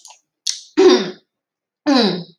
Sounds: Throat clearing